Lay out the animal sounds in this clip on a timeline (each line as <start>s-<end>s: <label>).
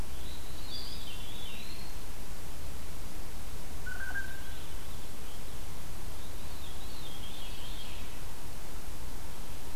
0.0s-2.0s: Veery (Catharus fuscescens)
0.5s-2.2s: Eastern Wood-Pewee (Contopus virens)
3.7s-4.6s: Blue Jay (Cyanocitta cristata)
6.2s-8.1s: Veery (Catharus fuscescens)